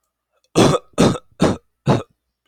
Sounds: Cough